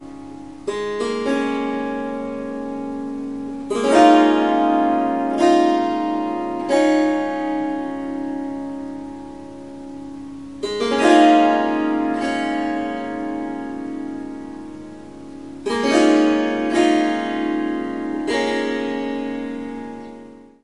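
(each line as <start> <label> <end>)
0.0 A melodic riff is played on a string instrument, featuring resonant tones. 20.6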